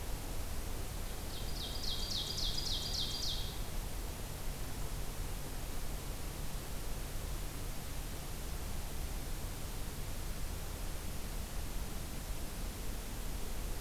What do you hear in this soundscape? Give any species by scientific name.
Seiurus aurocapilla